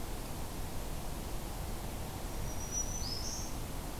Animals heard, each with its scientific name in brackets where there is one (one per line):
Black-throated Green Warbler (Setophaga virens)